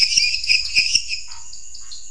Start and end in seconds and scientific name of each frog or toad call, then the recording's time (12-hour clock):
0.0	1.1	Dendropsophus minutus
0.0	2.1	Dendropsophus nanus
0.6	2.1	Scinax fuscovarius
10:30pm